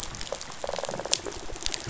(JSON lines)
{"label": "biophony", "recorder": "SoundTrap 500"}
{"label": "biophony, rattle", "recorder": "SoundTrap 500"}